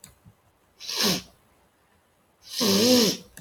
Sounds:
Sneeze